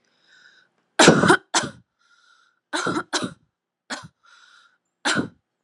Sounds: Cough